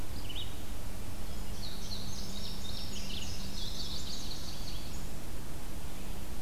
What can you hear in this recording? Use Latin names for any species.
Vireo olivaceus, Passerina cyanea